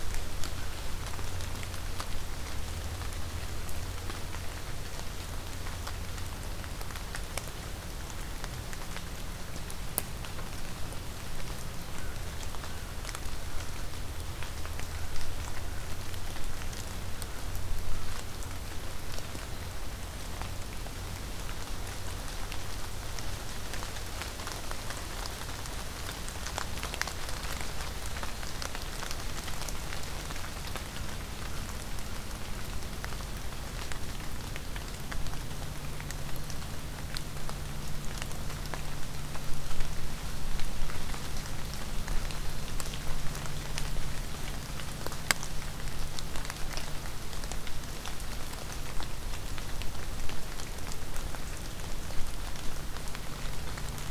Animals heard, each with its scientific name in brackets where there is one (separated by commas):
American Crow (Corvus brachyrhynchos)